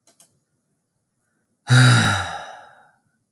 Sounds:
Sigh